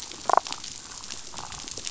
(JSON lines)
{"label": "biophony, damselfish", "recorder": "SoundTrap 500"}